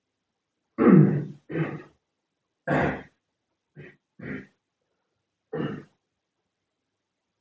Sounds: Throat clearing